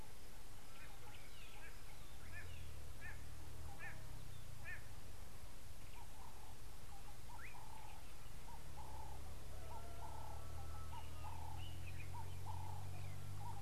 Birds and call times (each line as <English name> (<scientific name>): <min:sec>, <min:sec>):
White-bellied Go-away-bird (Corythaixoides leucogaster): 0:03.9
Ring-necked Dove (Streptopelia capicola): 0:10.1